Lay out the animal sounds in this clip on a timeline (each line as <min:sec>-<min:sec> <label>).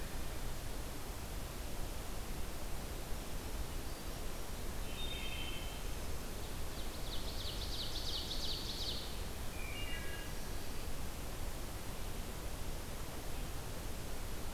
0:04.8-0:05.8 Wood Thrush (Hylocichla mustelina)
0:06.1-0:09.1 Ovenbird (Seiurus aurocapilla)
0:09.4-0:10.7 Wood Thrush (Hylocichla mustelina)